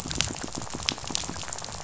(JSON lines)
{"label": "biophony, rattle", "recorder": "SoundTrap 500"}